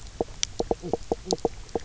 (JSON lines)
{"label": "biophony, knock croak", "recorder": "SoundTrap 300"}